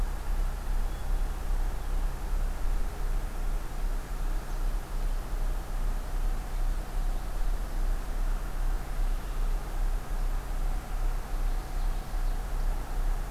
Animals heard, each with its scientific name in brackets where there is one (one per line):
Common Yellowthroat (Geothlypis trichas)